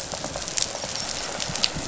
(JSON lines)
{"label": "biophony, rattle response", "recorder": "SoundTrap 500"}